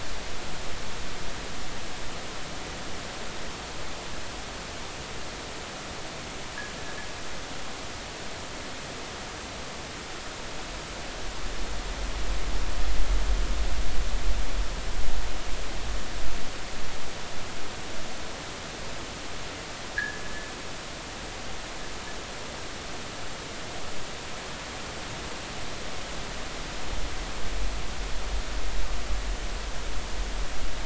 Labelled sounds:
20.0	20.2	fishing gear, 1.5 to 2.0 kHz

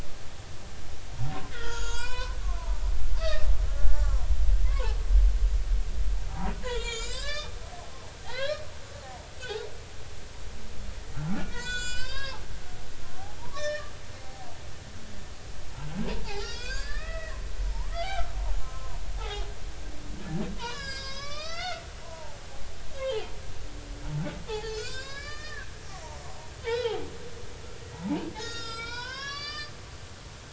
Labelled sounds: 1.5	2.9	humpback whale, 0.90 to 7.6 kHz
3.2	4.3	humpback whale, 0.80 to 2.7 kHz
4.6	5.0	humpback whale, 0.80 to 1.2 kHz
6.3	7.5	humpback whale, 0.80 to 8.0 kHz
8.2	9.6	humpback whale, 0.80 to 4.8 kHz
11.3	12.4	humpback whale, 0.80 to 7.7 kHz
13.4	14.5	humpback whale, 0.80 to 5.6 kHz
16.3	18.3	humpback whale, 0.83 to 7.6 kHz
18.6	19.4	humpback whale, 0.80 to 1.4 kHz
20.6	22.4	humpback whale, 0.83 to 7.2 kHz
22.9	23.3	humpback whale, 2.4 to 3.3 kHz
24.5	25.7	humpback whale, 0.96 to 7.6 kHz
26.6	27.1	humpback whale, 0.80 to 3.6 kHz
27.9	29.7	humpback whale, 0.80 to 8.0 kHz

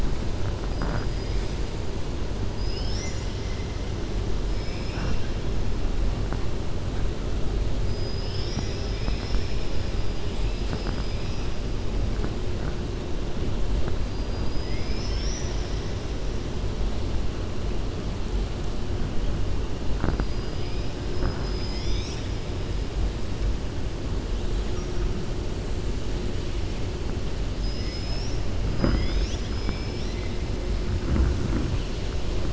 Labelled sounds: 20.1	20.9	killer whale, 4.4 to 5.4 kHz
27.5	28.4	killer whale, 4.9 to 6.5 kHz

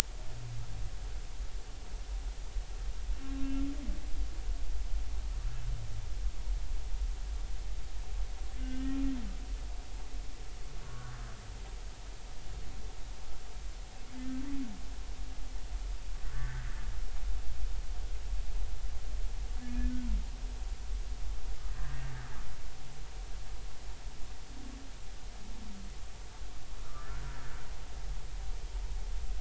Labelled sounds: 8.6	9.1	humpback whale, 1.2 to 3.0 kHz
10.8	11.1	humpback whale, 0.96 to 1.2 kHz
16.3	16.6	humpback whale, 1.7 to 2.0 kHz
19.6	19.9	humpback whale, 1.6 to 1.8 kHz
21.7	22.1	humpback whale, 1.6 to 2.0 kHz
26.8	27.3	humpback whale, 1.1 to 1.6 kHz

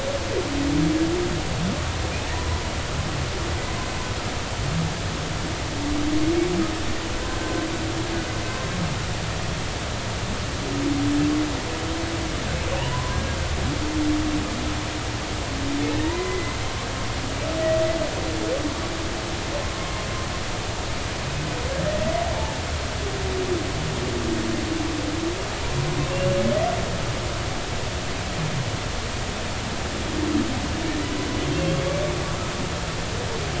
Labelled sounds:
2.3	2.6	humpback whale, 0.93 to 1.1 kHz
12.9	13.4	humpback whale, 0.96 to 1.7 kHz
16.0	16.6	humpback whale, 0.90 to 2.1 kHz
26.1	26.4	humpback whale, 2.6 to 2.9 kHz

